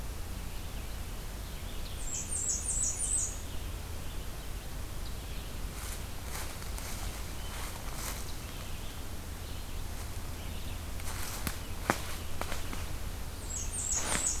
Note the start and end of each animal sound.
[0.57, 14.40] Red-eyed Vireo (Vireo olivaceus)
[1.88, 3.39] Blackburnian Warbler (Setophaga fusca)
[13.28, 14.40] Blackburnian Warbler (Setophaga fusca)

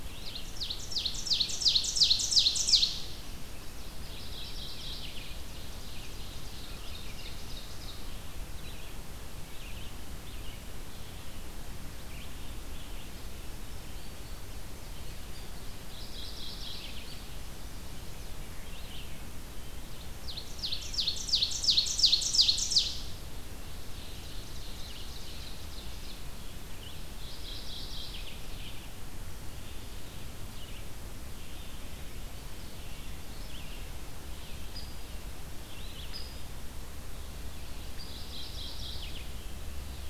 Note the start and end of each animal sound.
[0.00, 3.51] Ovenbird (Seiurus aurocapilla)
[0.00, 19.14] Red-eyed Vireo (Vireo olivaceus)
[3.87, 5.29] Mourning Warbler (Geothlypis philadelphia)
[5.47, 7.98] Ovenbird (Seiurus aurocapilla)
[15.65, 17.13] Mourning Warbler (Geothlypis philadelphia)
[20.00, 23.30] Ovenbird (Seiurus aurocapilla)
[23.59, 26.51] Ovenbird (Seiurus aurocapilla)
[24.20, 40.09] Red-eyed Vireo (Vireo olivaceus)
[27.03, 28.48] Mourning Warbler (Geothlypis philadelphia)
[34.68, 36.36] Hairy Woodpecker (Dryobates villosus)
[37.62, 39.37] Mourning Warbler (Geothlypis philadelphia)

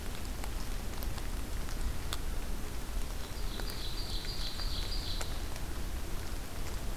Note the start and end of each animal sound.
[3.10, 5.45] Ovenbird (Seiurus aurocapilla)

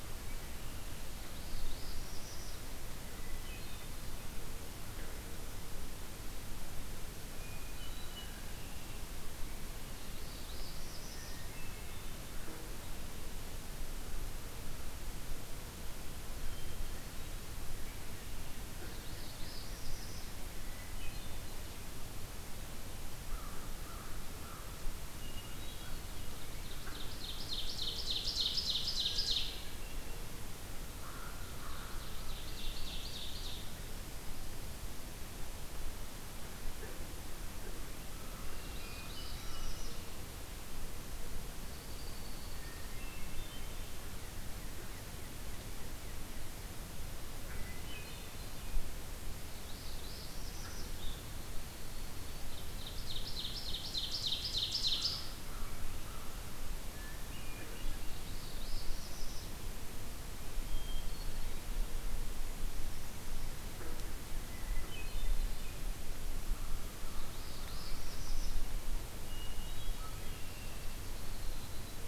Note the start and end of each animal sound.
[1.28, 2.66] Northern Parula (Setophaga americana)
[3.09, 4.02] Hermit Thrush (Catharus guttatus)
[7.29, 8.45] Hermit Thrush (Catharus guttatus)
[8.18, 9.16] Red-winged Blackbird (Agelaius phoeniceus)
[9.91, 11.37] Northern Parula (Setophaga americana)
[11.20, 12.16] Hermit Thrush (Catharus guttatus)
[16.38, 17.32] Hermit Thrush (Catharus guttatus)
[18.77, 20.33] Northern Parula (Setophaga americana)
[20.53, 21.51] Hermit Thrush (Catharus guttatus)
[23.26, 24.74] American Crow (Corvus brachyrhynchos)
[25.11, 26.03] Hermit Thrush (Catharus guttatus)
[26.41, 29.67] Ovenbird (Seiurus aurocapilla)
[28.98, 30.22] Hermit Thrush (Catharus guttatus)
[30.92, 32.05] American Crow (Corvus brachyrhynchos)
[31.30, 33.68] Ovenbird (Seiurus aurocapilla)
[32.11, 33.14] Red-winged Blackbird (Agelaius phoeniceus)
[38.16, 39.81] American Crow (Corvus brachyrhynchos)
[38.26, 39.19] Red-winged Blackbird (Agelaius phoeniceus)
[38.60, 40.03] Northern Parula (Setophaga americana)
[41.44, 42.85] Downy Woodpecker (Dryobates pubescens)
[42.72, 43.88] Hermit Thrush (Catharus guttatus)
[47.46, 48.63] Hermit Thrush (Catharus guttatus)
[49.49, 50.94] Northern Parula (Setophaga americana)
[51.27, 52.60] Yellow-rumped Warbler (Setophaga coronata)
[52.44, 55.28] Ovenbird (Seiurus aurocapilla)
[54.75, 56.53] American Crow (Corvus brachyrhynchos)
[56.84, 57.77] Hermit Thrush (Catharus guttatus)
[58.12, 59.51] Northern Parula (Setophaga americana)
[60.61, 61.60] Hermit Thrush (Catharus guttatus)
[64.46, 65.72] Hermit Thrush (Catharus guttatus)
[66.40, 68.00] American Crow (Corvus brachyrhynchos)
[67.24, 68.54] Northern Parula (Setophaga americana)
[69.34, 70.27] Hermit Thrush (Catharus guttatus)
[70.06, 70.94] Red-winged Blackbird (Agelaius phoeniceus)
[70.74, 72.07] Downy Woodpecker (Dryobates pubescens)

